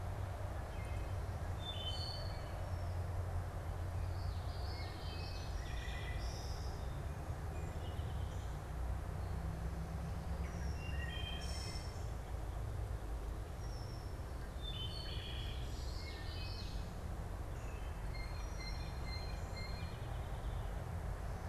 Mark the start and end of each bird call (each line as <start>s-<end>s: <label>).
0.7s-2.9s: Wood Thrush (Hylocichla mustelina)
4.0s-5.6s: Common Yellowthroat (Geothlypis trichas)
4.4s-7.1s: Wood Thrush (Hylocichla mustelina)
7.6s-8.6s: American Goldfinch (Spinus tristis)
10.3s-14.2s: unidentified bird
10.6s-12.2s: Wood Thrush (Hylocichla mustelina)
14.3s-15.9s: Wood Thrush (Hylocichla mustelina)
15.6s-16.8s: Common Yellowthroat (Geothlypis trichas)
17.8s-20.0s: Blue Jay (Cyanocitta cristata)
19.7s-20.7s: American Goldfinch (Spinus tristis)